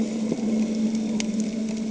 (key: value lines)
label: anthrophony, boat engine
recorder: HydroMoth